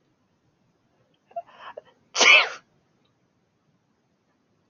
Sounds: Sneeze